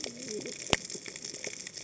{"label": "biophony, cascading saw", "recorder": "HydroMoth"}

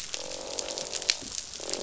{"label": "biophony, croak", "recorder": "SoundTrap 500"}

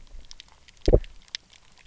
{"label": "biophony, double pulse", "recorder": "SoundTrap 300"}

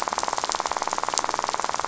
{"label": "biophony, rattle", "recorder": "SoundTrap 500"}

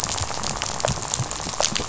{"label": "biophony, rattle", "recorder": "SoundTrap 500"}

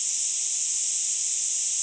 {"label": "ambient", "recorder": "HydroMoth"}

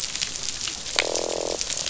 {"label": "biophony, croak", "recorder": "SoundTrap 500"}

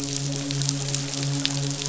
{"label": "biophony, midshipman", "recorder": "SoundTrap 500"}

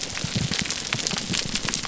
{"label": "biophony", "recorder": "SoundTrap 300"}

